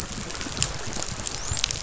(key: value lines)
label: biophony, dolphin
recorder: SoundTrap 500